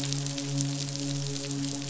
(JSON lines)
{"label": "biophony, midshipman", "recorder": "SoundTrap 500"}